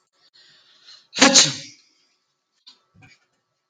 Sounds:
Sneeze